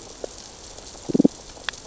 {"label": "biophony, damselfish", "recorder": "SoundTrap 600 or HydroMoth"}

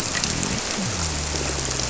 {"label": "biophony", "recorder": "SoundTrap 300"}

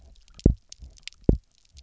{"label": "biophony, double pulse", "recorder": "SoundTrap 300"}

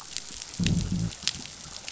{"label": "biophony, growl", "recorder": "SoundTrap 500"}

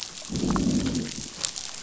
{"label": "biophony, growl", "recorder": "SoundTrap 500"}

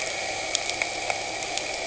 {"label": "anthrophony, boat engine", "recorder": "HydroMoth"}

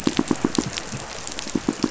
{"label": "biophony, pulse", "recorder": "SoundTrap 500"}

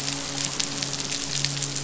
{"label": "biophony, midshipman", "recorder": "SoundTrap 500"}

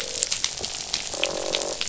{"label": "biophony, croak", "recorder": "SoundTrap 500"}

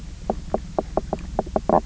{"label": "biophony, knock croak", "recorder": "SoundTrap 300"}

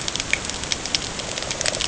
{"label": "ambient", "recorder": "HydroMoth"}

